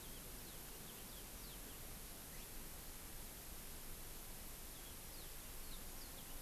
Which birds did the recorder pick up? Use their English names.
Yellow-fronted Canary